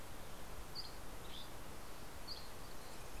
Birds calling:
Dusky Flycatcher (Empidonax oberholseri)

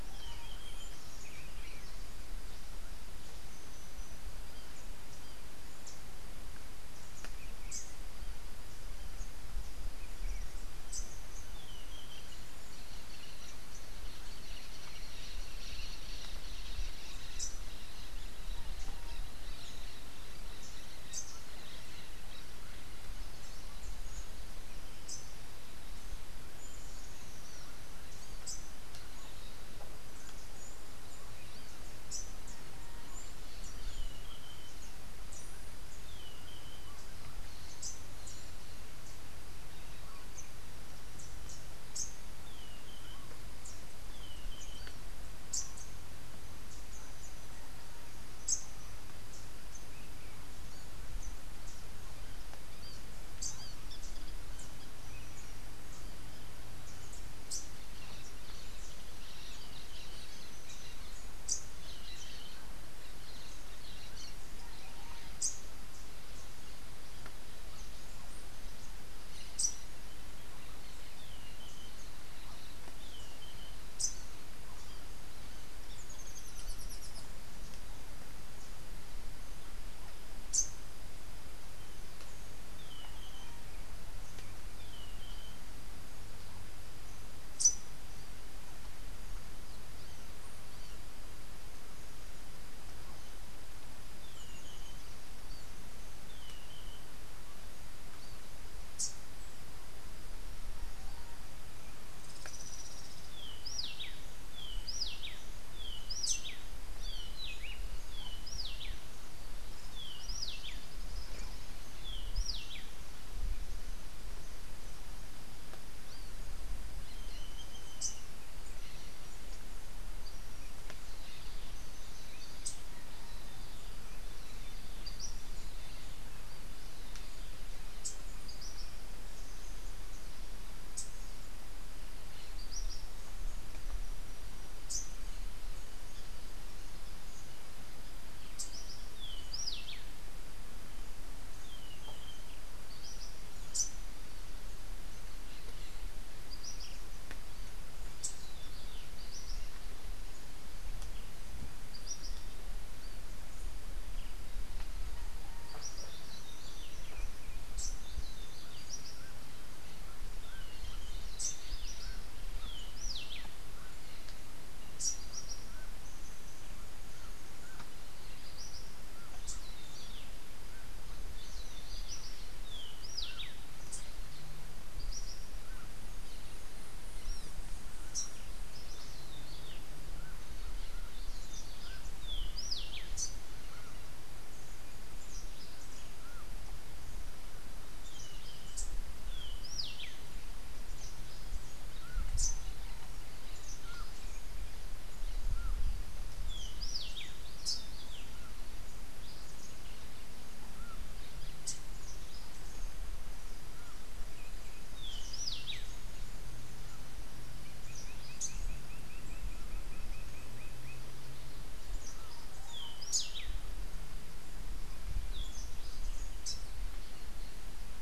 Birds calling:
Rufous-tailed Hummingbird (Amazilia tzacatl), Rufous-breasted Wren (Pheugopedius rutilus), Rufous-capped Warbler (Basileuterus rufifrons), Orange-fronted Parakeet (Eupsittula canicularis), Lineated Woodpecker (Dryocopus lineatus), Social Flycatcher (Myiozetetes similis), Buff-throated Saltator (Saltator maximus)

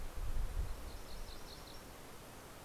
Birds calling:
MacGillivray's Warbler (Geothlypis tolmiei)

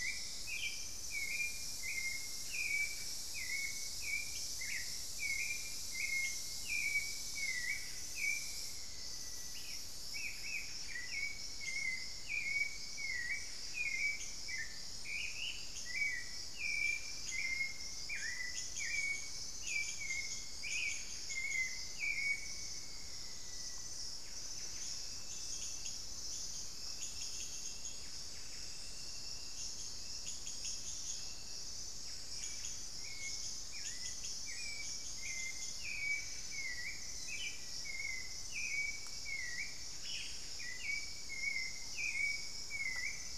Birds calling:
Hauxwell's Thrush (Turdus hauxwelli), Black-faced Antthrush (Formicarius analis), Ash-throated Gnateater (Conopophaga peruviana), Thrush-like Wren (Campylorhynchus turdinus), unidentified bird, Buff-breasted Wren (Cantorchilus leucotis)

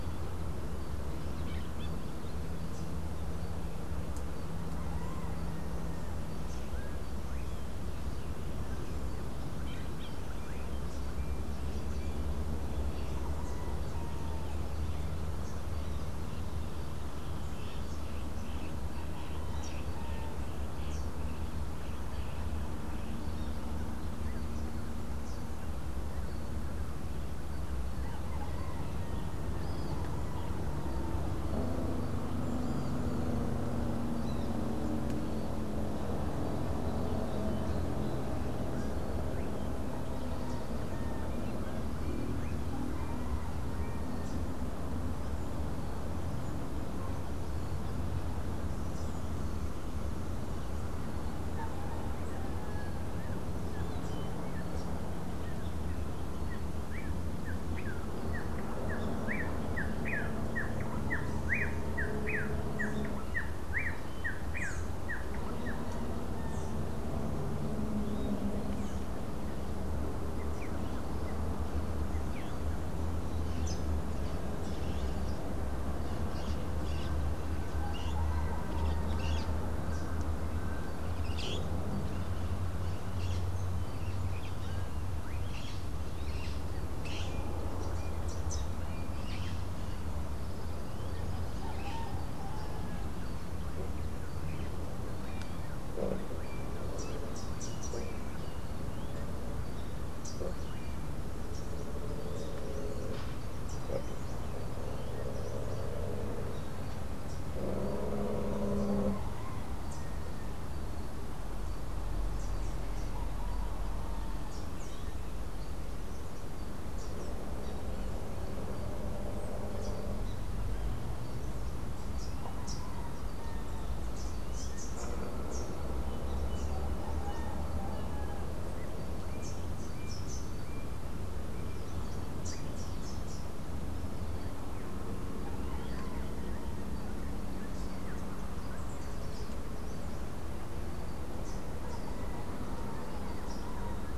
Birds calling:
Rufous-capped Warbler (Basileuterus rufifrons), Crimson-fronted Parakeet (Psittacara finschi), Rufous-naped Wren (Campylorhynchus rufinucha)

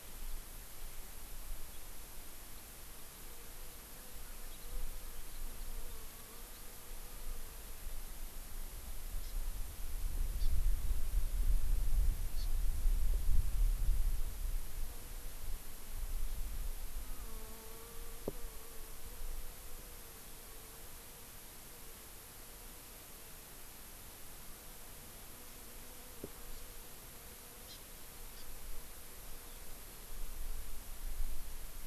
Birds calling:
Hawaii Amakihi (Chlorodrepanis virens), Warbling White-eye (Zosterops japonicus)

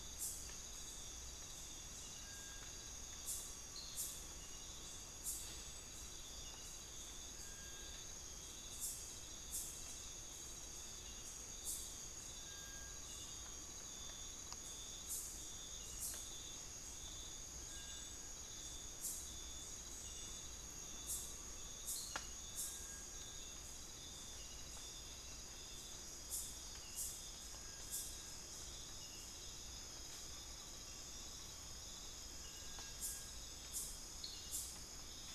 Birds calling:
Amazonian Pygmy-Owl (Glaucidium hardyi), Horned Screamer (Anhima cornuta), Bartlett's Tinamou (Crypturellus bartletti)

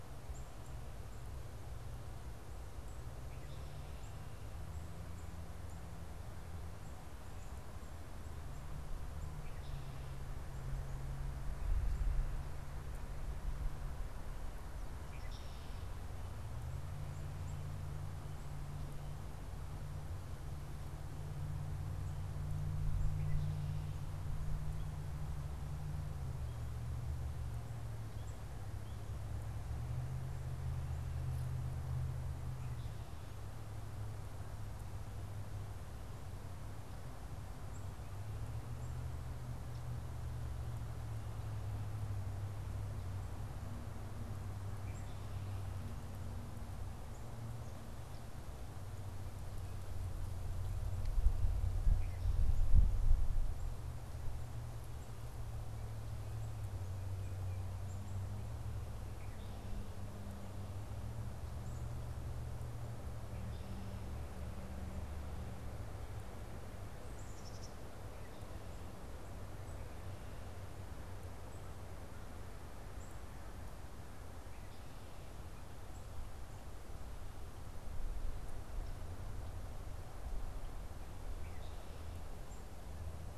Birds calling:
Black-capped Chickadee (Poecile atricapillus), Red-winged Blackbird (Agelaius phoeniceus)

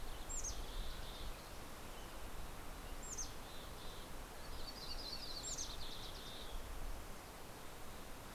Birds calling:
Mountain Quail (Oreortyx pictus), Mountain Chickadee (Poecile gambeli), Yellow-rumped Warbler (Setophaga coronata)

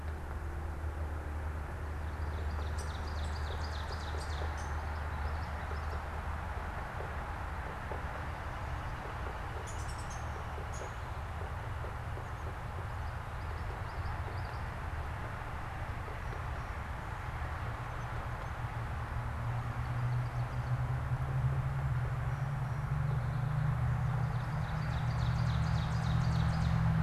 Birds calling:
Downy Woodpecker (Dryobates pubescens), Ovenbird (Seiurus aurocapilla), Common Yellowthroat (Geothlypis trichas)

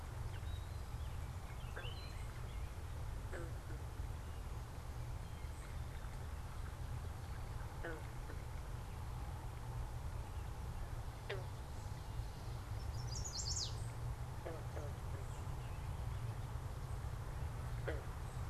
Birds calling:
unidentified bird, Chestnut-sided Warbler (Setophaga pensylvanica), American Robin (Turdus migratorius)

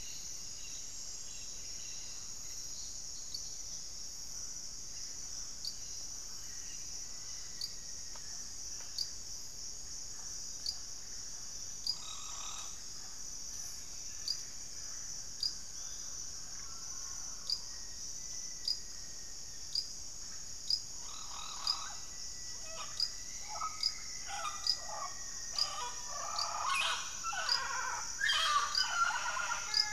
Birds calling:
Mealy Parrot (Amazona farinosa), Russet-backed Oropendola (Psarocolius angustifrons), Rufous-fronted Antthrush (Formicarius rufifrons), Black-faced Antthrush (Formicarius analis)

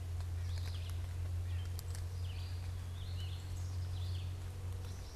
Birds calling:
Black-capped Chickadee (Poecile atricapillus), Red-eyed Vireo (Vireo olivaceus), White-breasted Nuthatch (Sitta carolinensis)

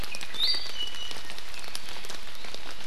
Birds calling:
Iiwi (Drepanis coccinea)

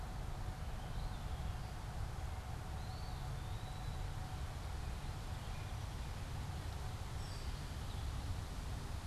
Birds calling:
American Robin (Turdus migratorius), Warbling Vireo (Vireo gilvus), Eastern Wood-Pewee (Contopus virens)

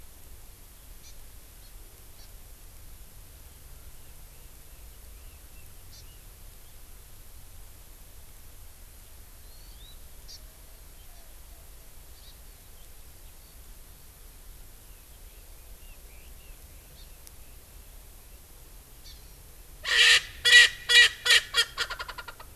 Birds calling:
Hawaii Amakihi (Chlorodrepanis virens), Red-billed Leiothrix (Leiothrix lutea), Erckel's Francolin (Pternistis erckelii)

